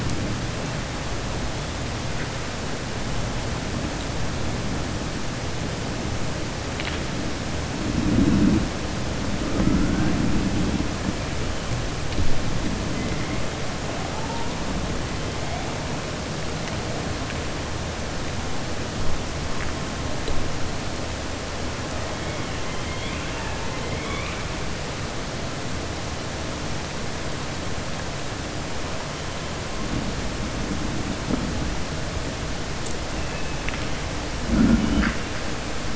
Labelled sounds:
22.7	24.4	killer whale, southern resident, 0.50 to 3.7 kHz

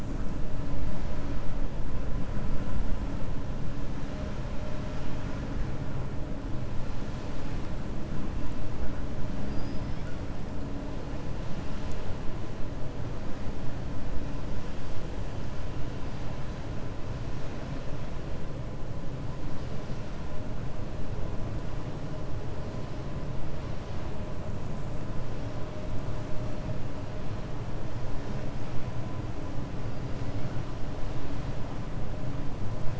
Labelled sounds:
9.4	10.0	killer whale, 4.7 to 5.4 kHz

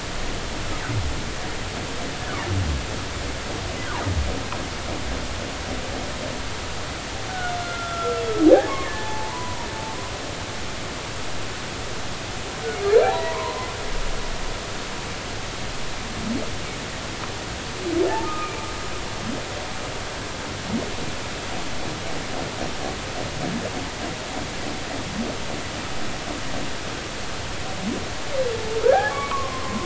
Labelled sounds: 7.3	10.1	humpback whale, 0.80 to 3.6 kHz
13.0	13.7	humpback whale, 0.80 to 1.2 kHz
18.2	18.7	humpback whale, 1.2 to 2.5 kHz
28.8	29.8	humpback whale, 0.80 to 2.4 kHz

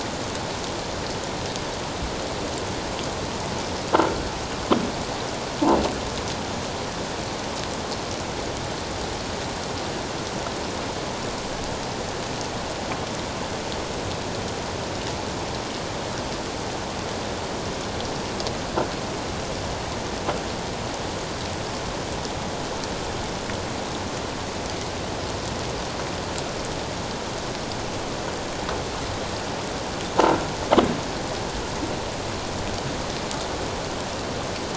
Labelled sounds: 30.2	30.4	croaking sound likely from a nearby submerged object, 1.3 to 1.4 kHz

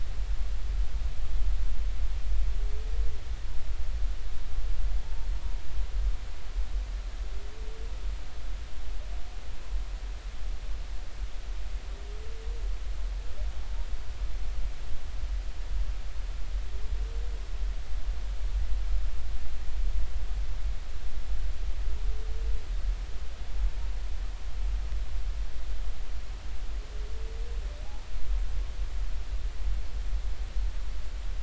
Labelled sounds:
5.0	5.3	humpback whale, 0.83 to 0.93 kHz

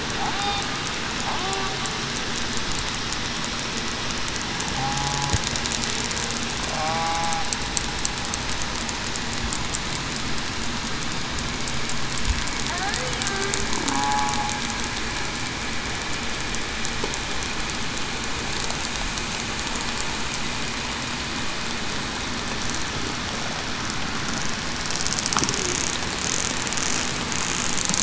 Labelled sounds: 4.7	5.3	killer whale, southern resident, 0.77 to 0.87 kHz
6.8	7.5	killer whale, southern resident, 0.58 to 0.84 kHz
13.9	14.3	killer whale, southern resident, 0.80 to 1.0 kHz

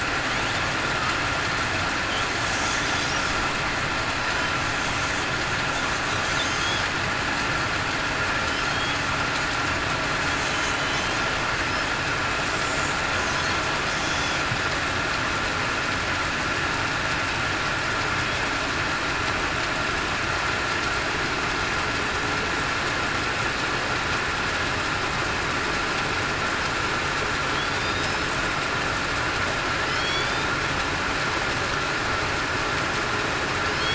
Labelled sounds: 10.7	11.0	killer whale, southern resident, 4.0 to 4.1 kHz
27.7	28.1	killer whale, southern resident, 3.5 to 3.8 kHz
29.9	30.3	killer whale, southern resident, 4.2 to 4.6 kHz

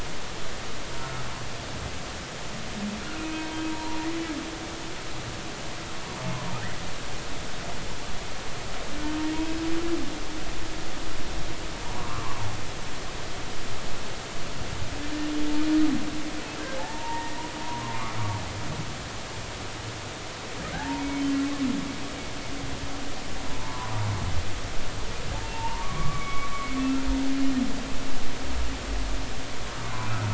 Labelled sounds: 1.0	1.2	humpback whale, 1.2 to 1.4 kHz
3.2	4.0	humpback whale, 0.86 to 2.6 kHz
11.9	12.4	humpback whale, 0.93 to 1.4 kHz
16.8	17.4	humpback whale, 0.80 to 2.0 kHz
17.9	18.2	humpback whale, 0.99 to 1.3 kHz
20.7	21.2	humpback whale, 0.80 to 2.3 kHz
23.6	24.1	humpback whale, 0.83 to 1.2 kHz
25.5	26.5	humpback whale, 0.83 to 2.3 kHz

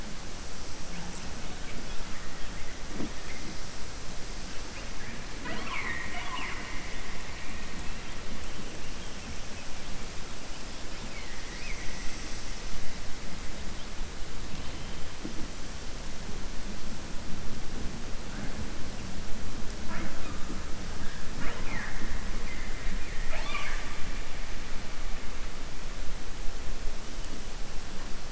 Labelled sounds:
5.3	6.8	killer whale, southern resident, 0.31 to 4.3 kHz
23.0	23.9	killer whale, southern resident, 0.64 to 6.9 kHz

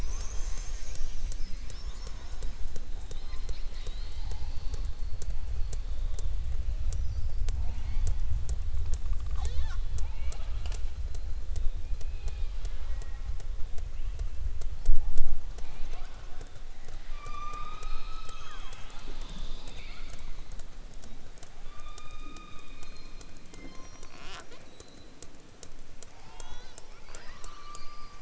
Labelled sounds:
9.9	10.9	killer whale, southern resident, 0.40 to 7.1 kHz
26.9	28.1	killer whale, southern resident, 0.55 to 5.4 kHz

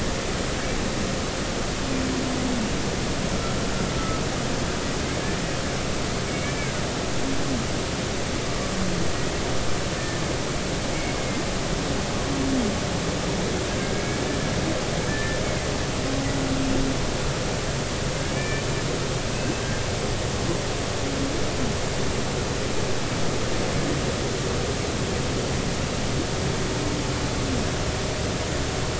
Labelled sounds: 4.0	4.2	humpback whale, 1.2 to 1.3 kHz
6.3	6.7	humpback whale, 2.1 to 2.4 kHz
10.0	10.2	humpback whale, 1.7 to 1.9 kHz
11.2	11.4	humpback whale, 2.0 to 2.2 kHz
15.1	15.4	humpback whale, 1.7 to 1.9 kHz
18.3	18.7	humpback whale, 1.7 to 2.4 kHz

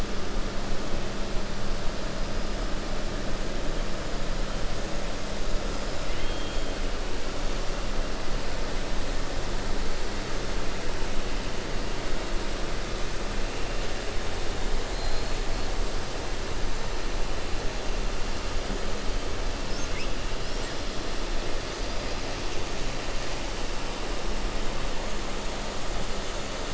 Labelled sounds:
6.0	6.7	killer whale, 2.0 to 3.3 kHz

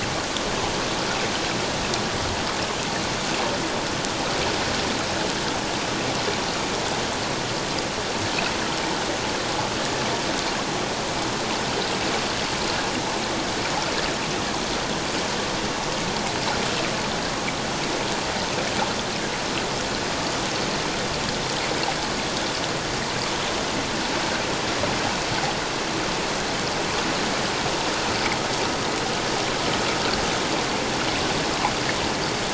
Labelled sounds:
9.8	10.0	water noise, 1.7 to 1.8 kHz

